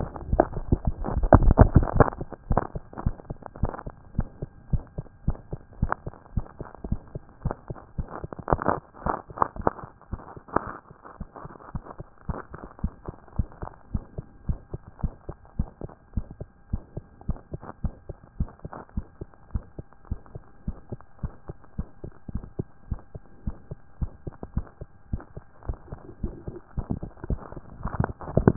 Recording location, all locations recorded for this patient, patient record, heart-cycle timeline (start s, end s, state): tricuspid valve (TV)
aortic valve (AV)+pulmonary valve (PV)+pulmonary valve (PV)+tricuspid valve (TV)+tricuspid valve (TV)+mitral valve (MV)
#Age: Child
#Sex: Male
#Height: 130.0 cm
#Weight: 25.8 kg
#Pregnancy status: False
#Murmur: Present
#Murmur locations: aortic valve (AV)+pulmonary valve (PV)+tricuspid valve (TV)
#Most audible location: pulmonary valve (PV)
#Systolic murmur timing: Early-systolic
#Systolic murmur shape: Decrescendo
#Systolic murmur grading: I/VI
#Systolic murmur pitch: Low
#Systolic murmur quality: Blowing
#Diastolic murmur timing: nan
#Diastolic murmur shape: nan
#Diastolic murmur grading: nan
#Diastolic murmur pitch: nan
#Diastolic murmur quality: nan
#Outcome: Abnormal
#Campaign: 2014 screening campaign
0.00	12.70	unannotated
12.70	12.82	diastole
12.82	12.94	S1
12.94	13.06	systole
13.06	13.16	S2
13.16	13.36	diastole
13.36	13.48	S1
13.48	13.62	systole
13.62	13.70	S2
13.70	13.92	diastole
13.92	14.04	S1
14.04	14.16	systole
14.16	14.26	S2
14.26	14.48	diastole
14.48	14.60	S1
14.60	14.72	systole
14.72	14.82	S2
14.82	15.02	diastole
15.02	15.14	S1
15.14	15.28	systole
15.28	15.36	S2
15.36	15.58	diastole
15.58	15.68	S1
15.68	15.82	systole
15.82	15.92	S2
15.92	16.14	diastole
16.14	16.26	S1
16.26	16.40	systole
16.40	16.50	S2
16.50	16.72	diastole
16.72	16.82	S1
16.82	16.96	systole
16.96	17.06	S2
17.06	17.26	diastole
17.26	17.38	S1
17.38	17.52	systole
17.52	17.62	S2
17.62	17.82	diastole
17.82	17.94	S1
17.94	18.08	systole
18.08	18.18	S2
18.18	18.38	diastole
18.38	18.50	S1
18.50	18.64	systole
18.64	18.74	S2
18.74	18.96	diastole
18.96	19.06	S1
19.06	19.20	systole
19.20	19.30	S2
19.30	19.52	diastole
19.52	19.64	S1
19.64	19.78	systole
19.78	19.88	S2
19.88	20.10	diastole
20.10	20.20	S1
20.20	20.34	systole
20.34	20.44	S2
20.44	20.66	diastole
20.66	20.76	S1
20.76	20.90	systole
20.90	21.00	S2
21.00	21.22	diastole
21.22	21.32	S1
21.32	21.48	systole
21.48	21.58	S2
21.58	21.78	diastole
21.78	21.88	S1
21.88	22.04	systole
22.04	22.12	S2
22.12	22.32	diastole
22.32	22.44	S1
22.44	22.58	systole
22.58	22.68	S2
22.68	22.90	diastole
22.90	23.00	S1
23.00	23.14	systole
23.14	23.24	S2
23.24	23.46	diastole
23.46	23.56	S1
23.56	23.70	systole
23.70	23.80	S2
23.80	24.00	diastole
24.00	24.12	S1
24.12	24.26	systole
24.26	24.34	S2
24.34	24.54	diastole
24.54	24.66	S1
24.66	24.80	systole
24.80	24.90	S2
24.90	25.10	diastole
25.10	25.22	S1
25.22	25.36	systole
25.36	25.46	S2
25.46	25.66	diastole
25.66	25.78	S1
25.78	25.90	systole
25.90	26.00	S2
26.00	26.22	diastole
26.22	26.34	S1
26.34	26.48	systole
26.48	26.58	S2
26.58	26.80	diastole
26.80	28.56	unannotated